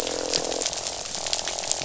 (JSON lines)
{"label": "biophony, croak", "recorder": "SoundTrap 500"}